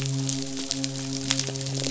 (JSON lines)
{"label": "biophony, midshipman", "recorder": "SoundTrap 500"}